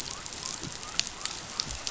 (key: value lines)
label: biophony
recorder: SoundTrap 500